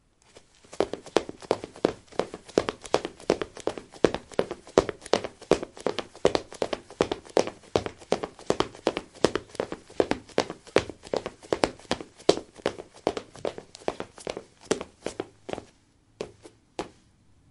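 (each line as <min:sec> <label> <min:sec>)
0:00.6 Repeated clear sounds of a person running with shoes on. 0:17.5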